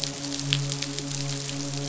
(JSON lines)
{"label": "biophony, midshipman", "recorder": "SoundTrap 500"}